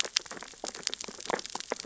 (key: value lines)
label: biophony, sea urchins (Echinidae)
recorder: SoundTrap 600 or HydroMoth